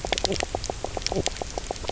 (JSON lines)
{"label": "biophony, knock croak", "recorder": "SoundTrap 300"}